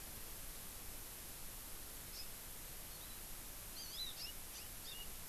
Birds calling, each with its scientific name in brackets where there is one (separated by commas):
Hawaii Amakihi (Chlorodrepanis virens)